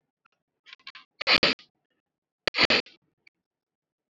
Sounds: Sniff